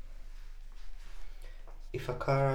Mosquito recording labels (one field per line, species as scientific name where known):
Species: Mansonia uniformis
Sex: female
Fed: unfed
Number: one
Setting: cup